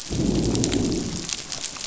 {"label": "biophony, growl", "recorder": "SoundTrap 500"}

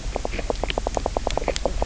{"label": "biophony, knock croak", "recorder": "SoundTrap 300"}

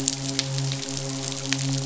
{"label": "biophony, midshipman", "recorder": "SoundTrap 500"}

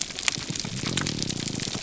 {"label": "biophony, grouper groan", "recorder": "SoundTrap 300"}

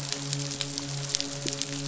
{"label": "biophony, midshipman", "recorder": "SoundTrap 500"}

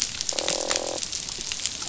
{"label": "biophony, croak", "recorder": "SoundTrap 500"}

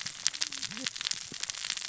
{"label": "biophony, cascading saw", "recorder": "SoundTrap 600 or HydroMoth"}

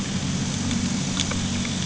{"label": "anthrophony, boat engine", "recorder": "HydroMoth"}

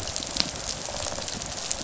{"label": "biophony, rattle response", "recorder": "SoundTrap 500"}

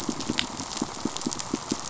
{"label": "biophony, pulse", "recorder": "SoundTrap 500"}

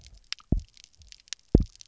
{"label": "biophony, double pulse", "recorder": "SoundTrap 300"}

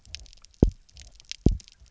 {"label": "biophony, double pulse", "recorder": "SoundTrap 300"}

